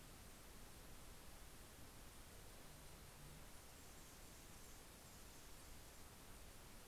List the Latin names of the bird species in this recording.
Calypte anna